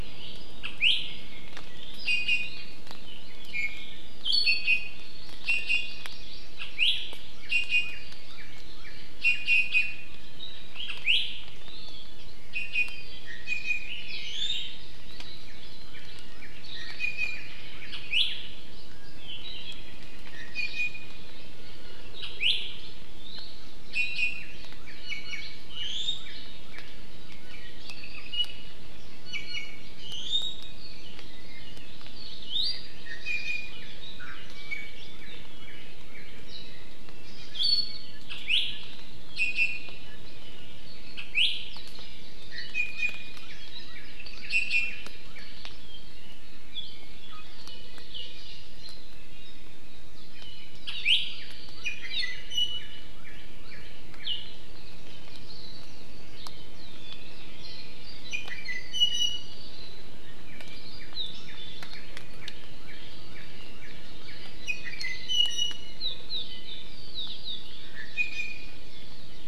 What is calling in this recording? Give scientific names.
Drepanis coccinea, Chlorodrepanis virens, Cardinalis cardinalis, Himatione sanguinea